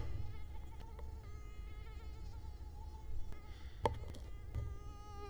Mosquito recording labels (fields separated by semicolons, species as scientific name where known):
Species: Culex quinquefasciatus; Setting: cup